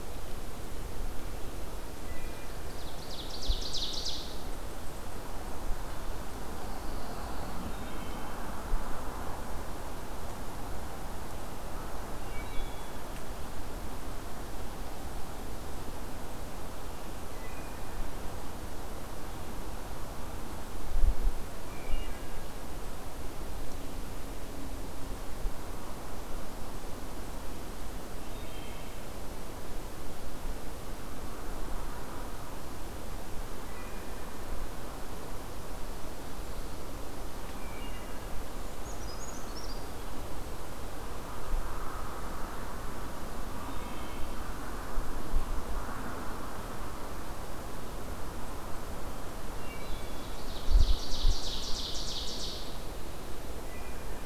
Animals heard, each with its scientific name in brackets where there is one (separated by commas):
Ovenbird (Seiurus aurocapilla), Pine Warbler (Setophaga pinus), Wood Thrush (Hylocichla mustelina), Brown Creeper (Certhia americana)